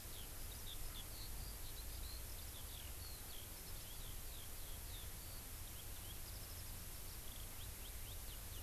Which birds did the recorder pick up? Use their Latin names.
Alauda arvensis